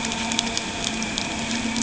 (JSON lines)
{"label": "anthrophony, boat engine", "recorder": "HydroMoth"}